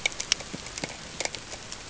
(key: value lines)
label: ambient
recorder: HydroMoth